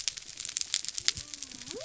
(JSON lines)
{"label": "biophony", "recorder": "SoundTrap 300"}